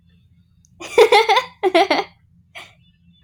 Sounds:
Laughter